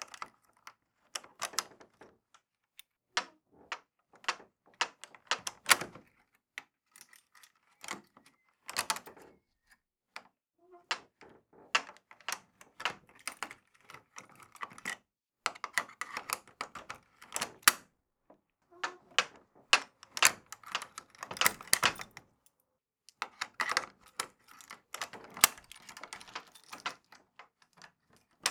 does a god bark on the other side of the door?
no